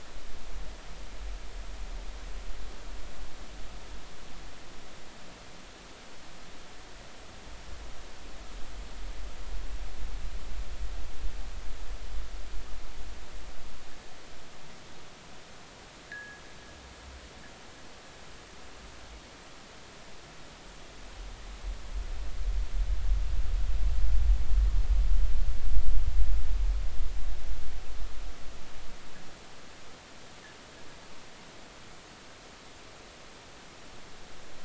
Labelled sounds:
16.1	16.4	fishing gear, 1.6 to 2.0 kHz

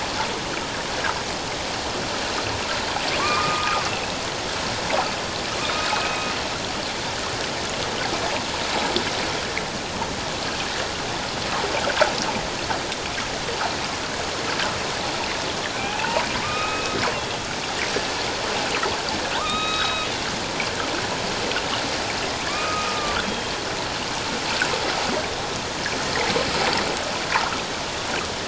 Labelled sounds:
3.2	3.9	killer whale, northern resident, A clan, AB subclan, 1.0 to 2.6 kHz
5.6	6.3	killer whale, northern resident, A clan, AB subclan, 2.4 to 2.7 kHz
15.7	16.9	killer whale, northern resident, A clan, AB subclan, 0.78 to 2.9 kHz
19.3	20.1	killer whale, northern resident, A clan, AB subclan, 0.88 to 3.9 kHz
22.5	23.6	killer whale, northern resident, A clan, AB subclan, 1.1 to 3.6 kHz

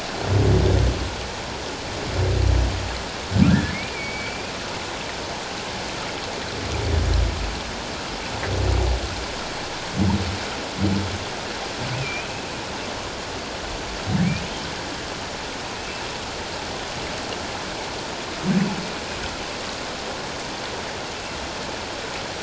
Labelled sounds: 3.5	4.5	humpback whale, 1.5 to 2.6 kHz
11.9	12.3	humpback whale, 2.3 to 2.7 kHz
15.8	16.0	humpback whale, 2.5 to 2.7 kHz

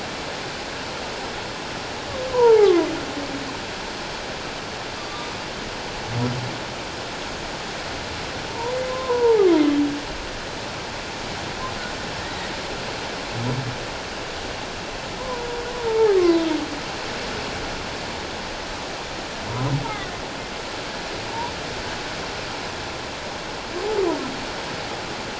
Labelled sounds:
2.3	2.9	humpback whale, 0.78 to 1.3 kHz
5.0	5.3	humpback whale, 1.1 to 3.7 kHz
8.5	9.5	humpback whale, 0.78 to 1.1 kHz
15.2	15.5	humpback whale, 0.88 to 1.1 kHz
15.9	16.6	humpback whale, 0.78 to 3.7 kHz
21.3	21.5	humpback whale, 0.88 to 1.1 kHz

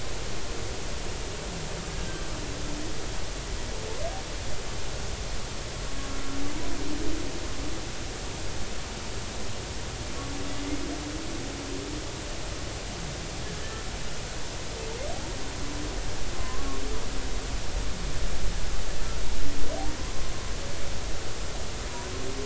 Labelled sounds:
1.9	2.2	humpback whale, 1.5 to 1.7 kHz
13.6	13.8	humpback whale, 1.7 to 1.8 kHz
16.3	16.8	humpback whale, 0.96 to 1.2 kHz
20.0	20.3	humpback whale, 0.99 to 1.2 kHz

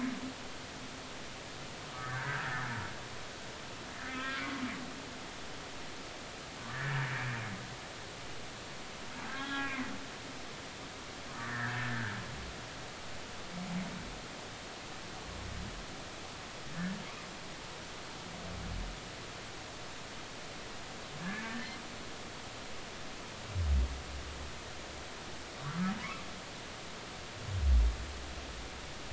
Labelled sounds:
2.0	2.5	humpback whale, 1.3 to 1.8 kHz
4.1	4.5	humpback whale, 1.2 to 2.5 kHz
6.7	6.9	humpback whale, 1.6 to 1.9 kHz
9.3	9.9	humpback whale, 0.99 to 3.4 kHz
11.3	12.0	humpback whale, 1.5 to 2.1 kHz
16.7	17.0	humpback whale, 1.6 to 1.8 kHz
21.2	21.5	humpback whale, 1.5 to 2.3 kHz
25.6	25.9	humpback whale, 1.2 to 1.4 kHz

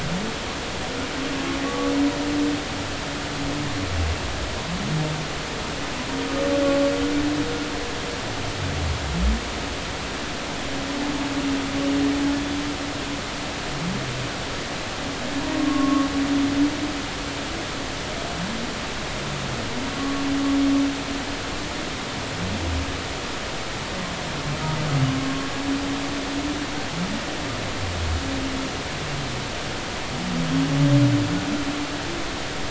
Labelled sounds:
1.7	1.9	humpback whale, 1.1 to 1.2 kHz
15.6	16.1	humpback whale, 1.0 to 1.2 kHz
20.0	20.2	humpback whale, 1.1 to 1.2 kHz

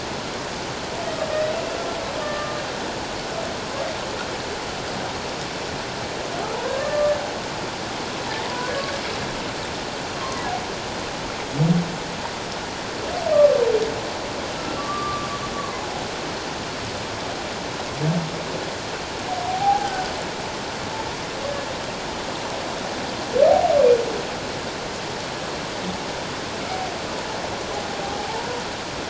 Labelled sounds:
1.5	2.6	humpback whale, 1.1 to 2.8 kHz
6.8	7.1	humpback whale, 1.1 to 1.2 kHz
8.5	8.7	humpback whale, 0.94 to 1.1 kHz
14.6	15.8	humpback whale, 0.97 to 1.4 kHz
19.5	20.1	humpback whale, 0.78 to 1.6 kHz

